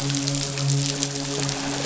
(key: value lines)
label: biophony, midshipman
recorder: SoundTrap 500